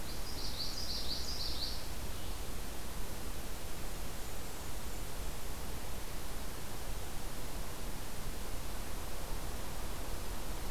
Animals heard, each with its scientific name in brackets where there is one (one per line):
Common Yellowthroat (Geothlypis trichas)